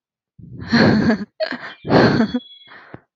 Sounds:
Laughter